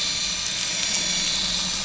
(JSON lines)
{"label": "anthrophony, boat engine", "recorder": "SoundTrap 500"}